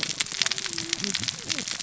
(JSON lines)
{"label": "biophony, cascading saw", "recorder": "SoundTrap 600 or HydroMoth"}